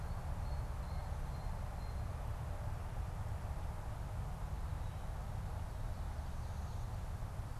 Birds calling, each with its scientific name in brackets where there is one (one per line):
Blue Jay (Cyanocitta cristata)